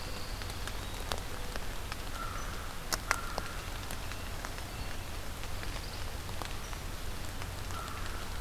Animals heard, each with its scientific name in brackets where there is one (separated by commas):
American Crow (Corvus brachyrhynchos), Pine Warbler (Setophaga pinus), Black-throated Green Warbler (Setophaga virens), Red-breasted Nuthatch (Sitta canadensis)